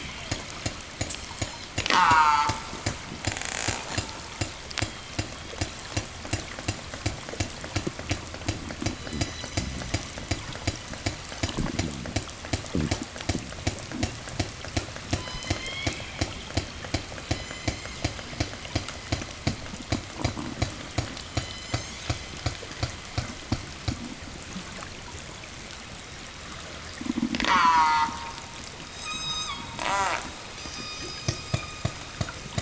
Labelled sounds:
1.6	2.8	killer whale, southern resident, call S04, 0 to 8.0 kHz
3.1	5.5	killer whale, 0 to 8.0 kHz
8.5	10.4	killer whale, southern resident, 0 to 8.0 kHz
14.8	16.3	killer whale, southern resident, 0 to 7.7 kHz
17.1	18.3	killer whale, southern resident, 0.76 to 8.0 kHz
21.1	22.4	killer whale, southern resident, 0 to 8.0 kHz
27.0	28.5	killer whale, southern resident, call S04, 0 to 8.0 kHz
28.8	31.9	killer whale, southern resident, 0 to 8.0 kHz

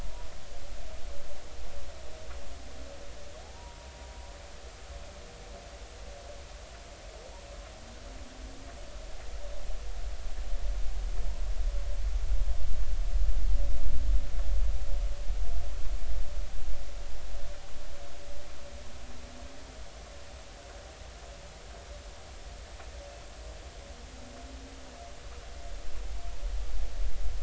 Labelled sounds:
3.5	3.9	humpback whale, 0.90 to 1.0 kHz

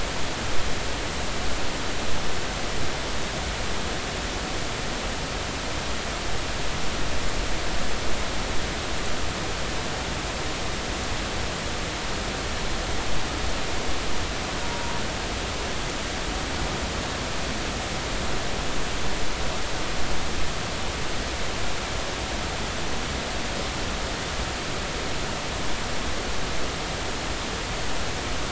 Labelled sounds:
14.6	14.9	killer whale, northern resident, 0.90 to 0.99 kHz

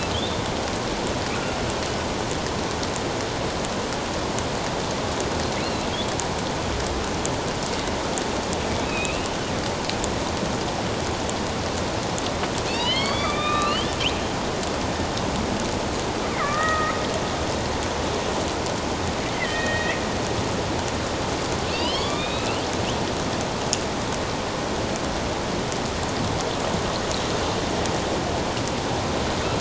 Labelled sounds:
0.1	0.4	killer whale, northern resident, A clan, AB subclan, 3.0 to 3.7 kHz
5.6	5.9	killer whale, northern resident, A clan, AB subclan, 3.9 to 4.3 kHz
8.8	9.4	killer whale, northern resident, A clan, AB subclan, 2.4 to 3.9 kHz
12.7	13.9	killer whale, northern resident, A clan, AB subclan, 1.1 to 5.5 kHz
16.4	17.0	killer whale, northern resident, A clan, AB subclan, 1.1 to 2.2 kHz
19.3	20.0	killer whale, northern resident, A clan, AB subclan, 1.8 to 2.2 kHz
21.7	22.6	killer whale, northern resident, A clan, AB subclan, 1.0 to 5.5 kHz

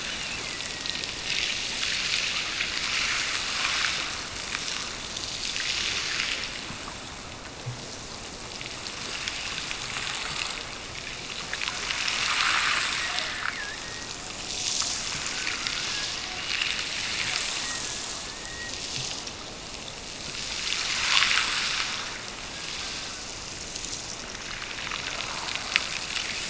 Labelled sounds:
0.0	1.2	killer whale, Bigg's (transient), Gulf of Alaska transient, 1.7 to 3.1 kHz

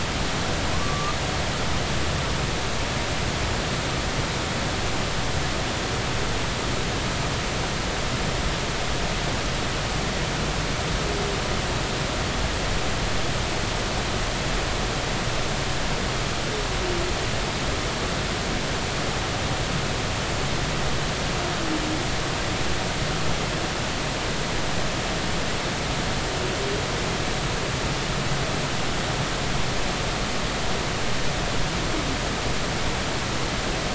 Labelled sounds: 0.7	1.1	humpback whale, 1.0 to 1.2 kHz

